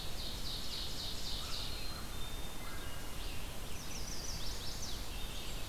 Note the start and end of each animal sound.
0.0s-1.8s: Ovenbird (Seiurus aurocapilla)
0.0s-5.7s: Red-eyed Vireo (Vireo olivaceus)
1.2s-2.9s: American Crow (Corvus brachyrhynchos)
1.6s-2.6s: Black-capped Chickadee (Poecile atricapillus)
2.5s-3.4s: Wood Thrush (Hylocichla mustelina)
3.7s-5.2s: Chestnut-sided Warbler (Setophaga pensylvanica)
5.0s-5.7s: Blackburnian Warbler (Setophaga fusca)

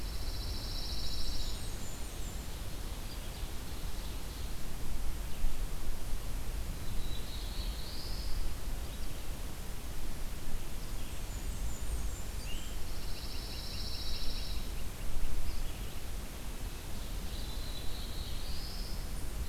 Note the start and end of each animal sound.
0.0s-1.6s: Pine Warbler (Setophaga pinus)
0.8s-2.6s: Blackburnian Warbler (Setophaga fusca)
2.1s-4.9s: Ovenbird (Seiurus aurocapilla)
2.8s-19.5s: Red-eyed Vireo (Vireo olivaceus)
6.7s-8.4s: Black-throated Blue Warbler (Setophaga caerulescens)
10.8s-12.8s: Blackburnian Warbler (Setophaga fusca)
12.4s-15.6s: Great Crested Flycatcher (Myiarchus crinitus)
12.8s-14.7s: Pine Warbler (Setophaga pinus)
17.2s-19.0s: Black-throated Blue Warbler (Setophaga caerulescens)

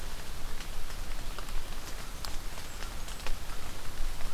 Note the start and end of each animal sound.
1.5s-3.3s: Blackburnian Warbler (Setophaga fusca)

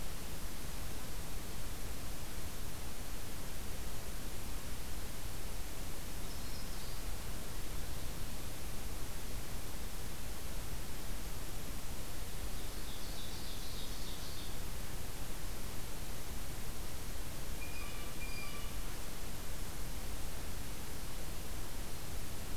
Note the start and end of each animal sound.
5.9s-7.2s: Yellow-rumped Warbler (Setophaga coronata)
12.1s-14.8s: Ovenbird (Seiurus aurocapilla)
17.6s-18.8s: Blue Jay (Cyanocitta cristata)

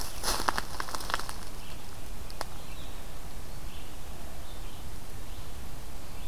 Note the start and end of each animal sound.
0.0s-6.3s: Red-eyed Vireo (Vireo olivaceus)

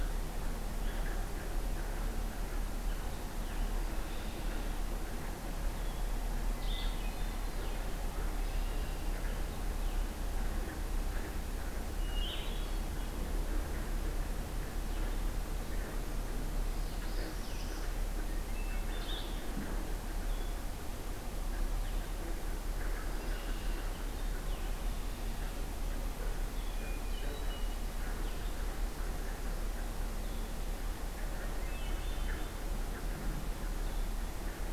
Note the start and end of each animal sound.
3.9s-4.7s: Red-winged Blackbird (Agelaius phoeniceus)
6.5s-7.0s: Blue-headed Vireo (Vireo solitarius)
6.5s-7.8s: Hermit Thrush (Catharus guttatus)
8.2s-9.2s: Red-winged Blackbird (Agelaius phoeniceus)
12.0s-12.9s: Hermit Thrush (Catharus guttatus)
12.1s-12.6s: Blue-headed Vireo (Vireo solitarius)
16.4s-17.9s: Northern Parula (Setophaga americana)
17.3s-34.7s: Blue-headed Vireo (Vireo solitarius)
18.5s-19.4s: Hermit Thrush (Catharus guttatus)
23.0s-23.9s: Red-winged Blackbird (Agelaius phoeniceus)
26.5s-27.7s: Hermit Thrush (Catharus guttatus)
31.5s-32.7s: Hermit Thrush (Catharus guttatus)

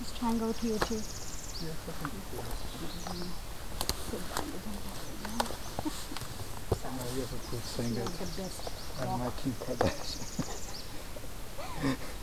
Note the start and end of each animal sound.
0.0s-1.8s: Northern Parula (Setophaga americana)
2.5s-3.4s: Magnolia Warbler (Setophaga magnolia)
7.1s-9.5s: Nashville Warbler (Leiothlypis ruficapilla)
9.3s-11.1s: Northern Parula (Setophaga americana)

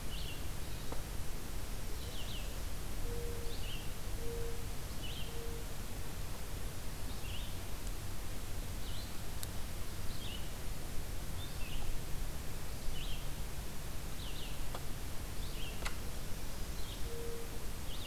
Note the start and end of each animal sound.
0.0s-18.1s: Red-eyed Vireo (Vireo olivaceus)
2.9s-5.8s: Mourning Dove (Zenaida macroura)
16.9s-18.1s: Mourning Dove (Zenaida macroura)

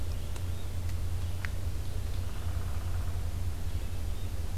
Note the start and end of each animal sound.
0.0s-4.6s: Red-eyed Vireo (Vireo olivaceus)
0.3s-0.7s: Yellow-bellied Flycatcher (Empidonax flaviventris)
2.1s-3.3s: Downy Woodpecker (Dryobates pubescens)

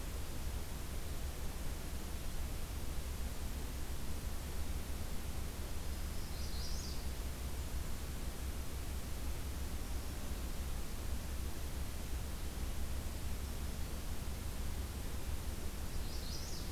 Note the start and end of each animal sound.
5.8s-6.6s: Black-throated Green Warbler (Setophaga virens)
6.3s-7.1s: Magnolia Warbler (Setophaga magnolia)
15.9s-16.7s: Magnolia Warbler (Setophaga magnolia)

